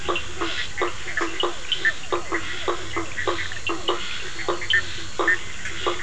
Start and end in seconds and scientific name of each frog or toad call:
0.0	3.0	Physalaemus cuvieri
0.0	6.0	Boana faber
1.8	2.5	Boana bischoffi
4.7	5.4	Boana bischoffi